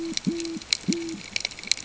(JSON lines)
{"label": "ambient", "recorder": "HydroMoth"}